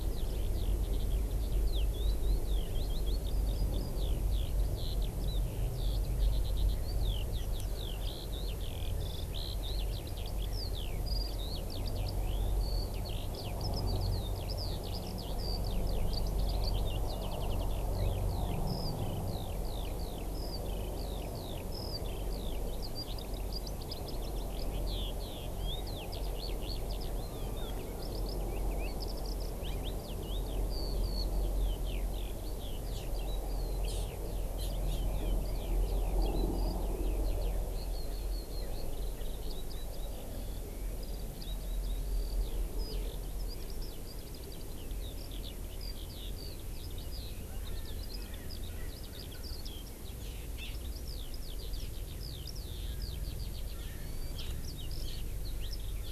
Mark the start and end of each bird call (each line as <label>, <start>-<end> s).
Eurasian Skylark (Alauda arvensis), 0.0-56.1 s
Hawaii Amakihi (Chlorodrepanis virens), 33.0-33.1 s
Hawaii Amakihi (Chlorodrepanis virens), 33.9-34.1 s
Hawaii Amakihi (Chlorodrepanis virens), 34.6-35.1 s
Erckel's Francolin (Pternistis erckelii), 47.5-49.6 s